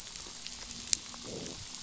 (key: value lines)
label: anthrophony, boat engine
recorder: SoundTrap 500

label: biophony
recorder: SoundTrap 500